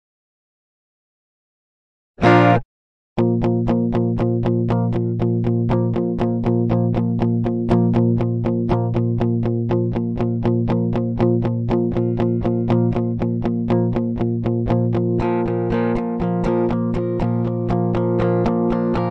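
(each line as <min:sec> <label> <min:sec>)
0:02.2 A guitar is played. 0:02.6
0:03.2 A single guitar note. 0:19.1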